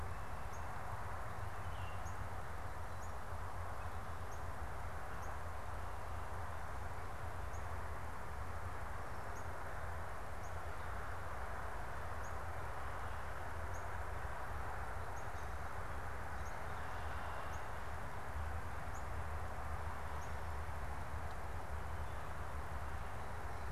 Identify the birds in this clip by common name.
Northern Cardinal, Baltimore Oriole